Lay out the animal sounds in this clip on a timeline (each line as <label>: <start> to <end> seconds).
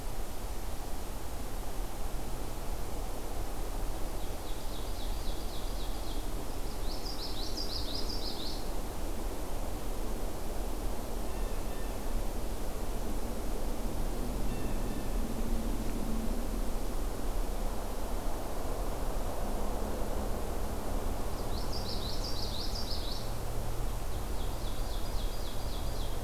Ovenbird (Seiurus aurocapilla): 3.9 to 6.4 seconds
Common Yellowthroat (Geothlypis trichas): 6.6 to 8.8 seconds
Blue Jay (Cyanocitta cristata): 11.0 to 12.1 seconds
Blue Jay (Cyanocitta cristata): 14.2 to 15.3 seconds
Common Yellowthroat (Geothlypis trichas): 21.1 to 23.4 seconds
Ovenbird (Seiurus aurocapilla): 23.9 to 26.2 seconds